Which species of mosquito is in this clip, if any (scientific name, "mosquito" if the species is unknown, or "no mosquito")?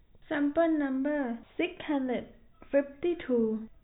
no mosquito